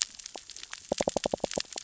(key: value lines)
label: biophony, knock
recorder: SoundTrap 600 or HydroMoth